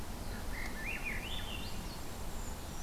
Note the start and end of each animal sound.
[0.21, 1.19] Black-throated Blue Warbler (Setophaga caerulescens)
[0.30, 2.06] Swainson's Thrush (Catharus ustulatus)
[1.34, 2.83] Golden-crowned Kinglet (Regulus satrapa)
[2.26, 2.83] Brown Creeper (Certhia americana)

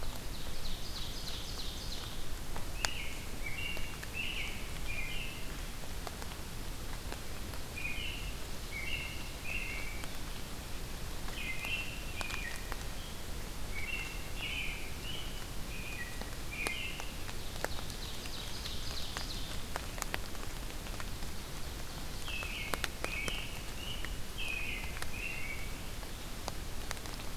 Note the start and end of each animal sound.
[0.00, 2.19] Ovenbird (Seiurus aurocapilla)
[2.71, 5.50] American Robin (Turdus migratorius)
[7.72, 10.09] American Robin (Turdus migratorius)
[11.18, 12.79] American Robin (Turdus migratorius)
[13.67, 17.16] American Robin (Turdus migratorius)
[17.16, 19.67] Ovenbird (Seiurus aurocapilla)
[22.08, 25.77] American Robin (Turdus migratorius)

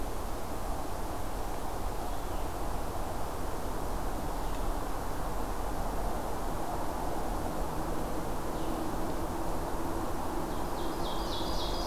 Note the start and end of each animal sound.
[0.00, 8.91] Blue-headed Vireo (Vireo solitarius)
[10.38, 11.86] Ovenbird (Seiurus aurocapilla)

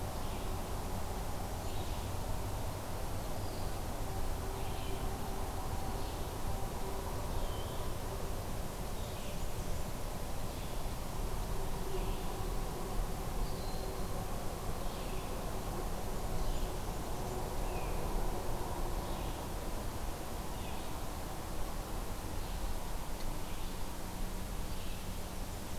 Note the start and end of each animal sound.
[0.00, 25.79] Red-eyed Vireo (Vireo olivaceus)
[0.77, 1.90] Blackburnian Warbler (Setophaga fusca)
[7.35, 7.79] Eastern Wood-Pewee (Contopus virens)
[8.86, 10.10] Blackburnian Warbler (Setophaga fusca)
[13.41, 14.13] Broad-winged Hawk (Buteo platypterus)
[16.42, 17.51] Blackburnian Warbler (Setophaga fusca)

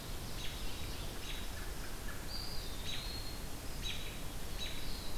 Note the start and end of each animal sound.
[0.00, 0.93] Ovenbird (Seiurus aurocapilla)
[0.00, 5.17] American Robin (Turdus migratorius)
[1.20, 2.60] American Crow (Corvus brachyrhynchos)
[2.18, 3.54] Eastern Wood-Pewee (Contopus virens)
[4.17, 5.17] Black-throated Blue Warbler (Setophaga caerulescens)

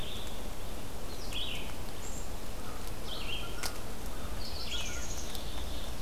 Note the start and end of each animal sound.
[1.08, 6.01] Red-eyed Vireo (Vireo olivaceus)
[2.54, 5.07] American Crow (Corvus brachyrhynchos)
[4.61, 6.01] Black-capped Chickadee (Poecile atricapillus)

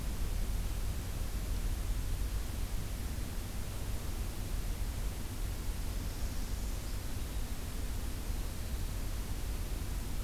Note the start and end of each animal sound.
[5.43, 7.25] Northern Parula (Setophaga americana)

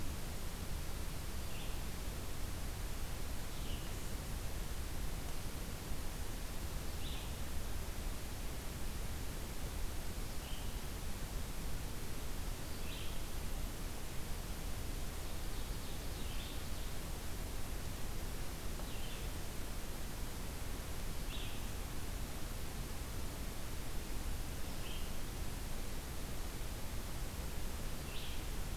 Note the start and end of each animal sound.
[1.49, 13.27] Red-eyed Vireo (Vireo olivaceus)
[14.97, 17.23] Ovenbird (Seiurus aurocapilla)
[16.15, 28.64] Red-eyed Vireo (Vireo olivaceus)

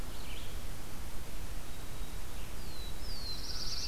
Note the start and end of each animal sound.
[0.00, 3.88] Red-eyed Vireo (Vireo olivaceus)
[2.38, 3.88] Black-throated Blue Warbler (Setophaga caerulescens)

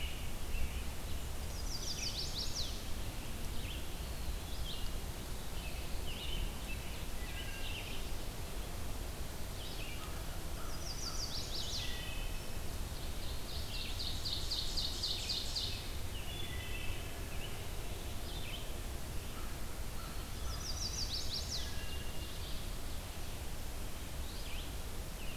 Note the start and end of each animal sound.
[0.00, 1.30] American Robin (Turdus migratorius)
[0.00, 2.27] Red-eyed Vireo (Vireo olivaceus)
[1.29, 2.86] Chestnut-sided Warbler (Setophaga pensylvanica)
[3.25, 7.12] Red-eyed Vireo (Vireo olivaceus)
[3.73, 5.14] Eastern Wood-Pewee (Contopus virens)
[5.43, 7.97] American Robin (Turdus migratorius)
[7.08, 7.99] Wood Thrush (Hylocichla mustelina)
[9.26, 11.64] American Crow (Corvus brachyrhynchos)
[9.55, 25.36] Red-eyed Vireo (Vireo olivaceus)
[10.47, 12.06] Chestnut-sided Warbler (Setophaga pensylvanica)
[11.73, 12.65] Wood Thrush (Hylocichla mustelina)
[13.12, 16.01] Ovenbird (Seiurus aurocapilla)
[16.18, 17.27] Wood Thrush (Hylocichla mustelina)
[18.87, 21.10] American Crow (Corvus brachyrhynchos)
[19.79, 21.25] Eastern Wood-Pewee (Contopus virens)
[20.33, 21.89] Chestnut-sided Warbler (Setophaga pensylvanica)
[21.51, 22.38] Wood Thrush (Hylocichla mustelina)

